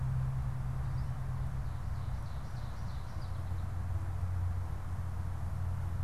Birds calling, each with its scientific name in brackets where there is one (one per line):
Ovenbird (Seiurus aurocapilla)